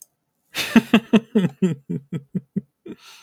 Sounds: Laughter